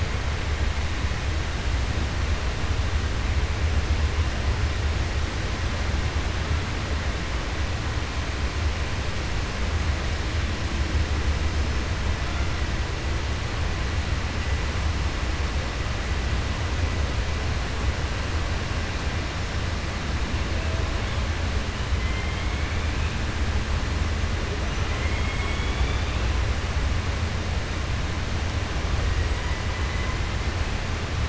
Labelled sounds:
24.8	26.2	killer whale, 2.0 to 3.6 kHz

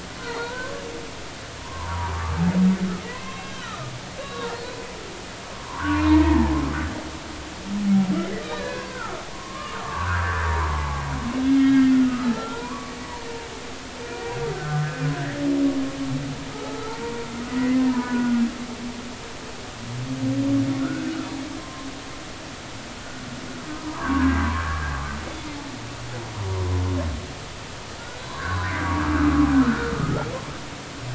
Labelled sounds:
0.2	3.9	humpback whale, 0.83 to 4.4 kHz
4.2	6.6	humpback whale, 0.80 to 3.9 kHz
8.2	11.0	humpback whale, 0.80 to 4.1 kHz
11.4	12.9	humpback whale, 0.86 to 3.3 kHz
14.0	15.4	humpback whale, 1.3 to 2.5 kHz
16.5	17.3	humpback whale, 0.80 to 1.4 kHz
17.6	18.4	humpback whale, 0.86 to 2.1 kHz
20.8	21.9	humpback whale, 0.99 to 1.6 kHz
23.7	24.9	humpback whale, 0.90 to 1.8 kHz
26.6	26.8	humpback whale, 0.93 to 1.1 kHz
28.0	29.0	humpback whale, 0.90 to 4.0 kHz
29.6	29.9	humpback whale, 1.2 to 1.6 kHz

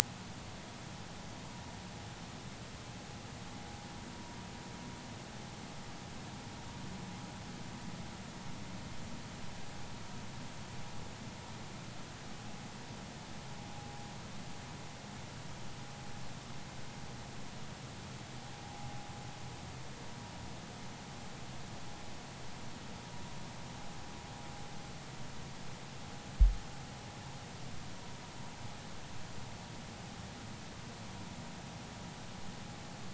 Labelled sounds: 18.6	18.9	vessel noise, 0.80 to 0.96 kHz

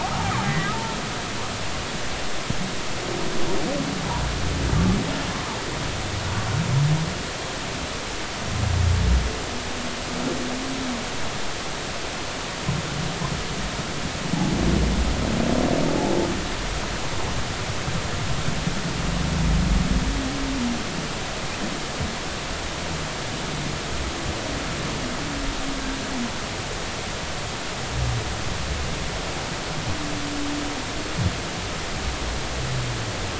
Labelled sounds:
0.4	0.7	humpback whale, 1.8 to 2.0 kHz

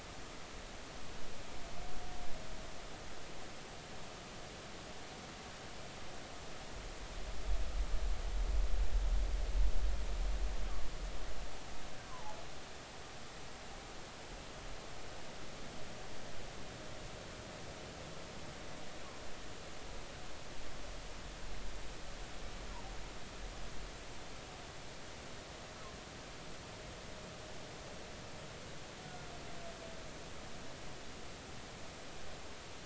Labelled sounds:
12.1	12.4	humpback whale, 0.80 to 1.2 kHz

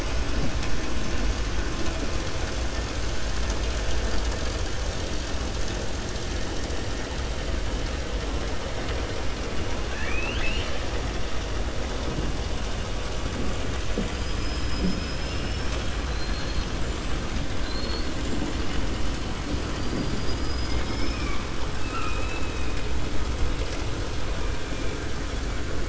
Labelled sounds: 9.8	10.8	killer whale, 0.90 to 5.5 kHz
16.0	16.7	killer whale, 3.2 to 4.6 kHz
17.5	18.1	killer whale, 3.4 to 4.6 kHz
19.7	21.4	killer whale, 1.1 to 6.0 kHz
21.7	22.8	killer whale, 1.2 to 4.0 kHz

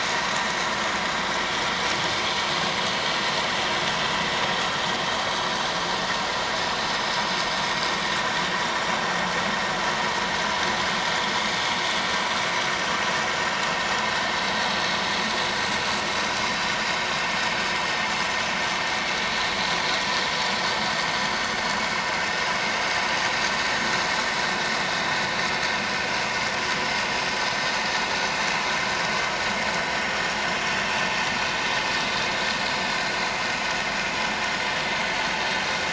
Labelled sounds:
8.7	9.0	vessel noise, 5.5 to 5.8 kHz

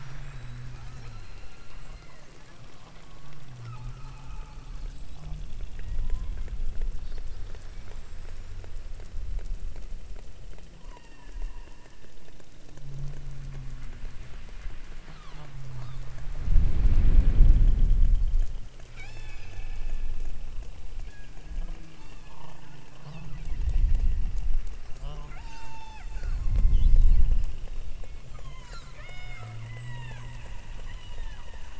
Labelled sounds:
0.6	2.6	killer whale, southern Alaska resident, 0.98 to 4.4 kHz
3.5	4.9	killer whale, southern Alaska resident, 0.66 to 2.8 kHz
5.7	6.8	killer whale, southern Alaska resident, 0.84 to 3.1 kHz
7.6	8.8	killer whale, southern Alaska resident, 4.3 to 8.0 kHz
10.7	11.6	killer whale, southern Alaska resident, 0.66 to 3.0 kHz
15.0	16.2	killer whale, southern Alaska resident, 0.46 to 6.2 kHz
18.9	19.6	killer whale, southern Alaska resident, 0.52 to 8.0 kHz
21.0	21.6	killer whale, southern Alaska resident, 1.3 to 6.7 kHz
21.9	22.5	killer whale, southern Alaska resident, 1.5 to 6.6 kHz
23.0	23.7	killer whale, southern Alaska resident, 1.8 to 5.8 kHz
25.0	27.1	killer whale, southern Alaska resident, 0.23 to 8.0 kHz
28.2	30.3	killer whale, southern Alaska resident, 0.46 to 8.0 kHz
30.8	31.6	killer whale, southern Alaska resident, 0.43 to 6.0 kHz

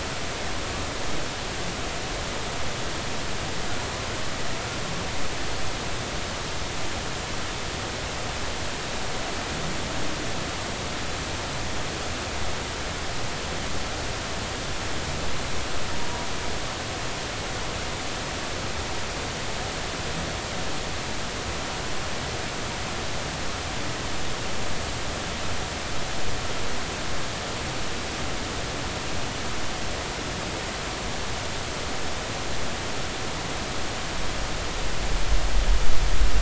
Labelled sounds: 16.0	16.3	humpback whale, 0.90 to 0.99 kHz

